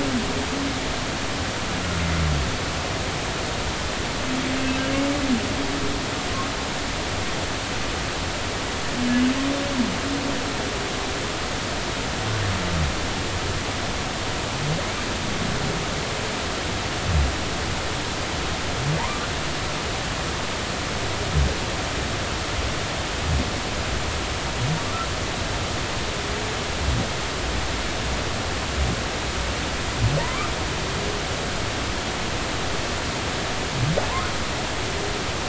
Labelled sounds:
19.0	19.3	humpback whale, 0.86 to 1.3 kHz
30.2	30.5	humpback whale, 0.90 to 1.4 kHz

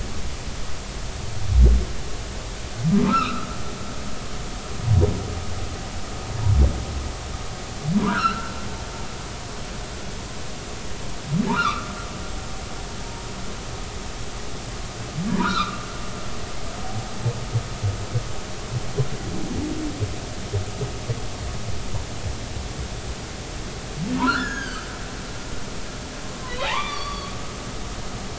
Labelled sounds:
3.0	3.5	humpback whale, 1.1 to 1.6 kHz
7.9	8.5	humpback whale, 0.93 to 1.7 kHz
11.5	11.9	humpback whale, 0.83 to 3.9 kHz
15.3	15.9	humpback whale, 0.90 to 4.3 kHz
24.2	24.9	humpback whale, 1.2 to 7.0 kHz
26.5	27.3	humpback whale, 0.80 to 4.7 kHz

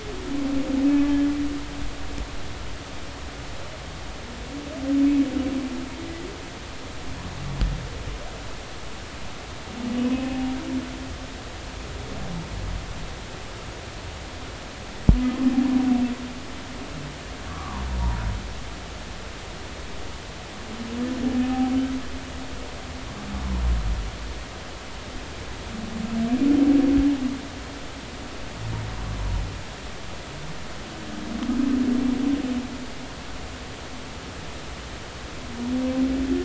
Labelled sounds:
10.1	10.6	humpback whale, 0.80 to 2.7 kHz
17.5	17.8	humpback whale, 0.90 to 1.4 kHz

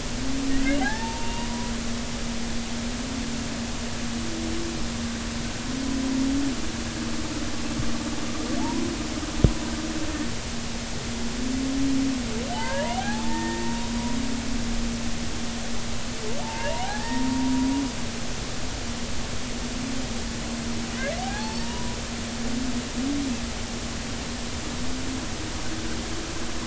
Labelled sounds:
0.5	1.7	humpback whale, 0.80 to 2.9 kHz
8.6	8.8	humpback whale, 0.80 to 1.1 kHz
12.5	13.9	humpback whale, 0.80 to 1.9 kHz
16.4	17.3	humpback whale, 0.80 to 1.9 kHz
21.2	22.0	humpback whale, 0.80 to 4.6 kHz

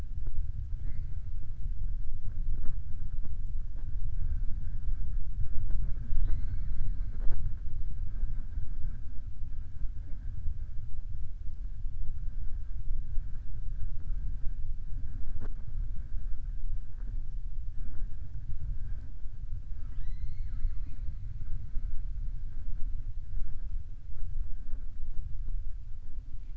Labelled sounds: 19.7	21.1	killer whale, southern resident, 0.45 to 6.5 kHz

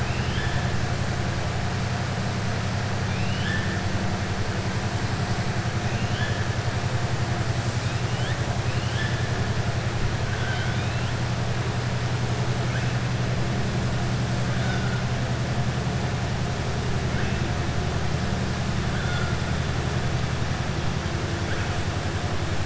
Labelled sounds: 0.0	0.6	killer whale, southern resident, 1.7 to 3.6 kHz
3.0	3.7	killer whale, southern resident, 1.6 to 3.9 kHz
5.8	6.4	killer whale, southern resident, 1.5 to 3.5 kHz
8.6	9.2	killer whale, southern resident, 1.7 to 3.6 kHz
10.3	11.1	killer whale, southern resident, 1.4 to 3.8 kHz
14.5	14.9	killer whale, southern resident, 0.73 to 2.3 kHz

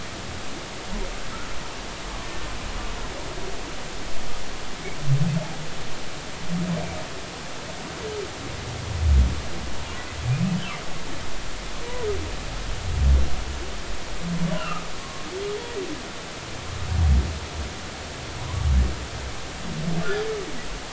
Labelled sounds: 2.2	2.5	humpback whale, 1.76 to 1.82 kHz
14.6	15.3	humpback whale, 1.0 to 1.5 kHz
18.4	18.7	humpback whale, 0.93 to 1.2 kHz

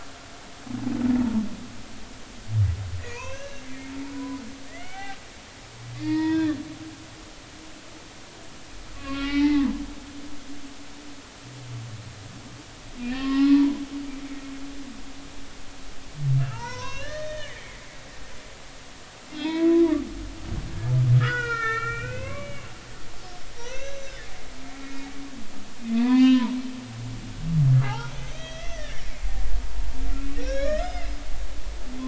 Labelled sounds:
3.0	4.4	humpback whale, 0.96 to 2.8 kHz
4.7	5.2	humpback whale, 0.80 to 3.2 kHz
6.0	6.6	humpback whale, 0.90 to 5.4 kHz
9.0	9.7	humpback whale, 0.80 to 2.9 kHz
13.0	13.8	humpback whale, 0.83 to 2.8 kHz
16.4	17.8	humpback whale, 0.86 to 6.1 kHz
19.3	20.0	humpback whale, 0.80 to 5.2 kHz
21.2	22.7	humpback whale, 0.90 to 5.4 kHz
23.5	24.3	humpback whale, 1.4 to 6.2 kHz
24.8	25.1	humpback whale, 2.4 to 2.5 kHz
25.8	26.5	humpback whale, 0.86 to 6.8 kHz
27.7	29.3	humpback whale, 0.80 to 6.5 kHz
30.4	31.1	humpback whale, 1.1 to 5.3 kHz

